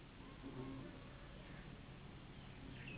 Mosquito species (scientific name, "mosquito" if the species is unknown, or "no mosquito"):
Anopheles gambiae s.s.